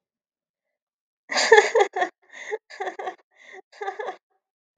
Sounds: Laughter